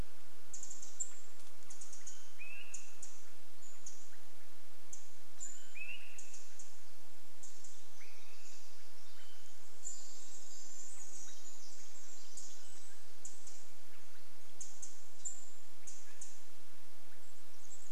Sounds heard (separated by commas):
Swainson's Thrush call, Pacific-slope Flycatcher call, Pacific Wren song, Pacific Wren call